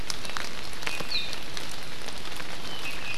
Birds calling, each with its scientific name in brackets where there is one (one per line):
Warbling White-eye (Zosterops japonicus)
Iiwi (Drepanis coccinea)